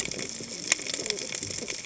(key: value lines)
label: biophony, cascading saw
recorder: HydroMoth